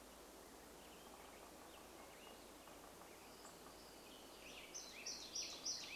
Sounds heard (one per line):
woodpecker drumming
warbler song
Black-headed Grosbeak song